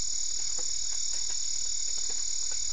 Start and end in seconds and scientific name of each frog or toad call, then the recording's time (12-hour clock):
none
9:30pm